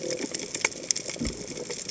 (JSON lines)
{"label": "biophony", "recorder": "HydroMoth"}